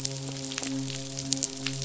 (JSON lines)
{"label": "biophony, midshipman", "recorder": "SoundTrap 500"}